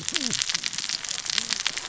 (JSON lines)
{"label": "biophony, cascading saw", "recorder": "SoundTrap 600 or HydroMoth"}